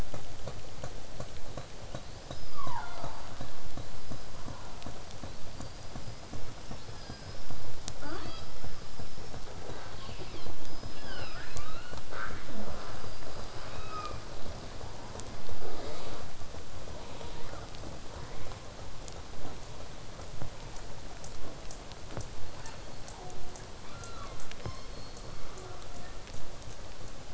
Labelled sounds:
1.9	3.5	killer whale, southern resident, 0.51 to 5.6 kHz
3.8	7.9	killer whale, southern resident, 1.3 to 5.6 kHz
8.0	8.6	killer whale, southern resident, L pod, call S18, 0.18 to 6.6 kHz
9.9	12.0	killer whale, southern resident, 0.44 to 5.8 kHz
13.6	14.2	killer whale, southern resident, call S16, 0.36 to 6.6 kHz
15.6	16.2	killer whale, southern resident, buzz, 0.15 to 4.9 kHz
17.9	22.3	killer whale, southern resident, 3.8 to 8.0 kHz
18.1	18.6	killer whale, southern resident, buzz, 0.22 to 2.5 kHz
22.4	23.7	killer whale, southern resident, J pod, call S03, 0.22 to 4.5 kHz
23.8	24.4	killer whale, southern resident, 0.33 to 5.0 kHz
24.6	26.2	killer whale, southern resident, J pod, call S03, 0.25 to 6.7 kHz

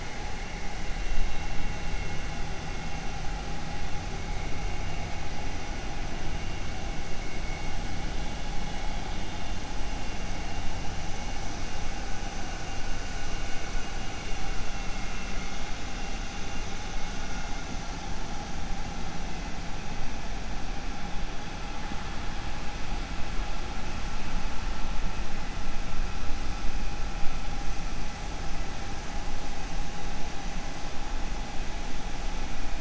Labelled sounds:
14.6	15.7	killer whale, 1.3 to 3.8 kHz

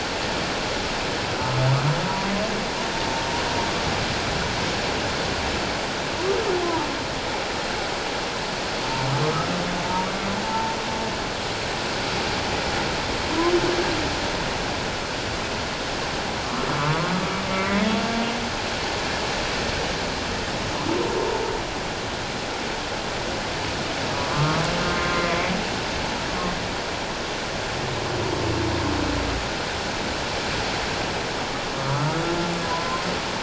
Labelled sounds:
6.6	6.9	humpback whale, 0.84 to 1.1 kHz
9.2	9.5	humpback whale, 1.1 to 1.3 kHz
10.4	10.8	humpback whale, 0.84 to 0.94 kHz
16.8	17.8	humpback whale, 0.97 to 2.2 kHz
24.1	24.6	humpback whale, 1.0 to 1.3 kHz
25.0	25.5	humpback whale, 1.0 to 2.2 kHz
32.6	33.0	humpback whale, 0.91 to 1.1 kHz

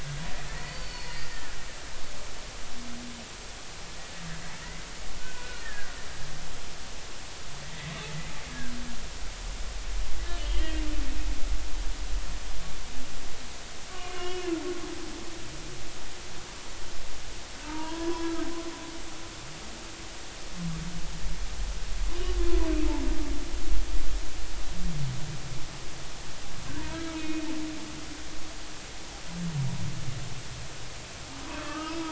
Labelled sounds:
0.0	1.6	humpback whale, 1.6 to 4.6 kHz
5.2	5.9	humpback whale, 1.4 to 2.6 kHz
8.5	8.7	humpback whale, 1.5 to 1.8 kHz
10.4	10.8	humpback whale, 2.8 to 3.3 kHz
13.9	14.6	humpback whale, 0.99 to 3.0 kHz
17.6	18.5	humpback whale, 0.86 to 1.8 kHz
26.9	27.5	humpback whale, 1.2 to 2.6 kHz
31.5	31.9	humpback whale, 0.93 to 1.6 kHz

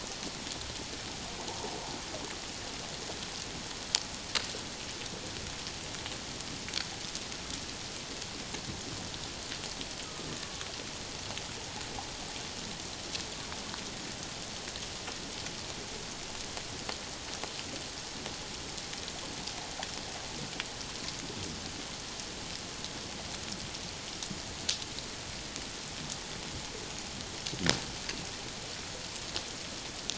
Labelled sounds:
1.5	1.7	water noise, 0.78 to 1.0 kHz
10.0	10.7	killer whale, Bigg's (transient), 1.1 to 1.3 kHz

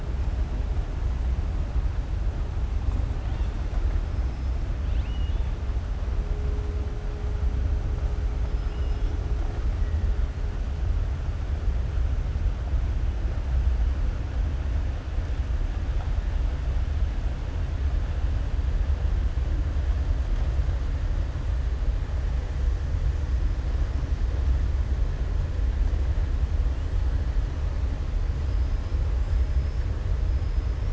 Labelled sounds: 4.8	5.5	killer whale, southern resident, 1.8 to 4.3 kHz
8.6	9.1	killer whale, southern resident, 2.5 to 3.7 kHz

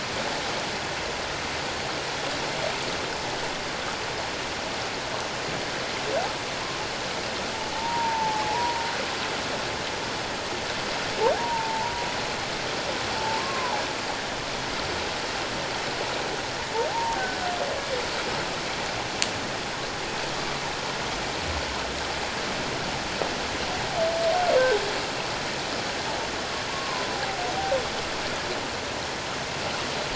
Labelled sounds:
7.7	8.8	humpback whale, 0.78 to 1.0 kHz
11.4	12.1	humpback whale, 0.84 to 1.0 kHz
13.2	13.8	humpback whale, 0.78 to 1.2 kHz
16.9	17.2	humpback whale, 0.78 to 1.0 kHz
26.7	27.1	humpback whale, 0.94 to 1.1 kHz

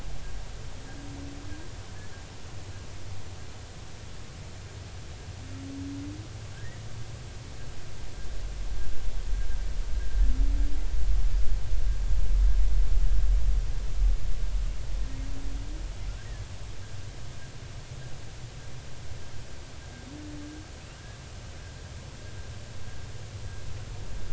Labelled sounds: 6.6	6.8	humpback whale, 1.5 to 2.0 kHz

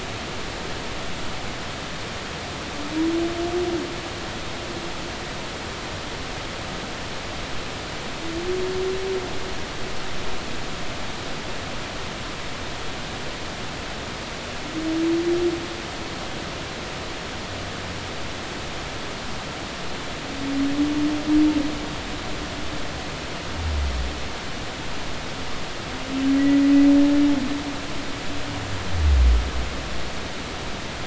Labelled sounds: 26.4	26.6	humpback whale, 1.9 to 2.0 kHz

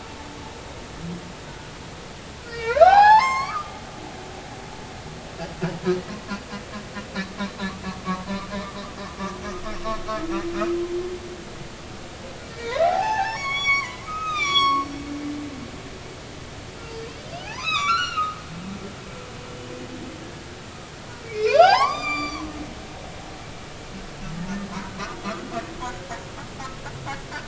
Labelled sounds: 1.5	3.8	humpback whale, 0.80 to 7.6 kHz
12.5	14.9	humpback whale, 0.80 to 7.9 kHz
16.8	17.1	humpback whale, 4.5 to 4.7 kHz
17.4	18.4	humpback whale, 0.80 to 7.0 kHz
21.2	22.5	humpback whale, 0.80 to 7.3 kHz

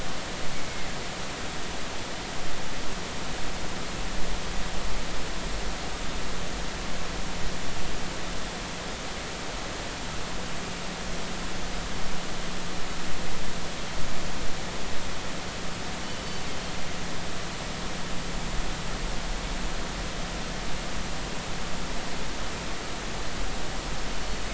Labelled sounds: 0.7	0.9	killer whale, northern resident, G clan, 2.0 to 2.2 kHz

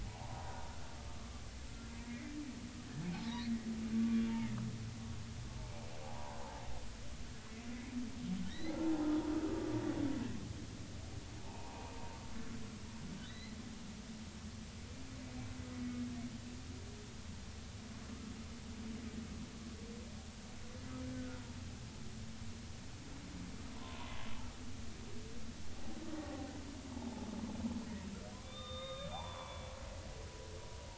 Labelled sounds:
0.0	0.7	humpback whale, 0.80 to 1.1 kHz
1.2	1.4	humpback whale, 1.1 to 1.2 kHz
2.1	2.3	humpback whale, 1.9 to 2.2 kHz
3.1	3.5	humpback whale, 0.80 to 4.5 kHz
6.0	6.4	humpback whale, 0.80 to 1.1 kHz
8.5	8.8	humpback whale, 1.7 to 4.2 kHz
9.3	9.8	humpback whale, 1.2 to 1.4 kHz
11.4	11.9	humpback whale, 0.80 to 1.2 kHz
13.2	13.6	humpback whale, 1.9 to 4.2 kHz
21.1	21.4	humpback whale, 1.4 to 1.6 kHz
23.7	24.1	humpback whale, 0.86 to 1.1 kHz
28.4	29.7	humpback whale, 0.80 to 3.7 kHz
30.8	30.9	humpback whale, 0.80 to 0.96 kHz

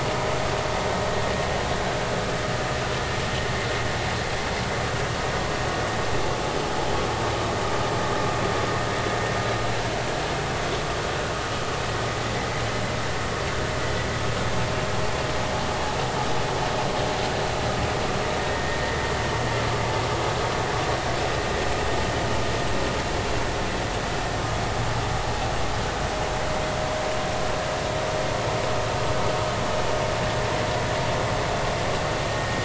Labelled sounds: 18.5	18.8	vessel noise, 1.8 to 2.1 kHz
32.4	32.6	vessel noise, 1.8 to 1.9 kHz

